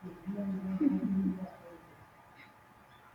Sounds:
Laughter